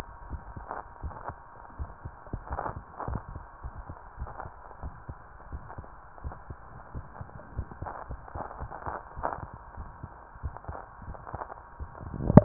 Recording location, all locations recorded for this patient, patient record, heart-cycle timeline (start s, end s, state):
tricuspid valve (TV)
aortic valve (AV)+pulmonary valve (PV)+tricuspid valve (TV)+mitral valve (MV)
#Age: Child
#Sex: Female
#Height: 121.0 cm
#Weight: 25.6 kg
#Pregnancy status: False
#Murmur: Unknown
#Murmur locations: nan
#Most audible location: nan
#Systolic murmur timing: nan
#Systolic murmur shape: nan
#Systolic murmur grading: nan
#Systolic murmur pitch: nan
#Systolic murmur quality: nan
#Diastolic murmur timing: nan
#Diastolic murmur shape: nan
#Diastolic murmur grading: nan
#Diastolic murmur pitch: nan
#Diastolic murmur quality: nan
#Outcome: Normal
#Campaign: 2015 screening campaign
0.00	1.01	unannotated
1.01	1.10	S1
1.10	1.25	systole
1.25	1.34	S2
1.34	1.77	diastole
1.77	1.86	S1
1.86	2.03	systole
2.03	2.10	S2
2.10	2.50	diastole
2.50	2.58	S1
2.58	2.74	systole
2.74	2.80	S2
2.80	3.07	diastole
3.07	3.16	S1
3.16	3.30	systole
3.30	3.41	S2
3.41	3.63	diastole
3.63	3.71	S1
3.71	3.87	systole
3.87	3.94	S2
3.94	4.19	diastole
4.19	4.27	S1
4.27	4.43	systole
4.43	4.50	S2
4.50	4.82	diastole
4.82	4.90	S1
4.90	5.07	systole
5.07	5.14	S2
5.14	5.52	diastole
5.52	5.59	S1
5.59	5.75	systole
5.76	5.83	S2
5.83	6.23	diastole
6.23	6.32	S1
6.32	6.48	systole
6.48	6.55	S2
6.55	6.90	diastole
6.90	7.02	S1
7.02	12.45	unannotated